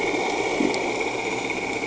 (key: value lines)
label: anthrophony, boat engine
recorder: HydroMoth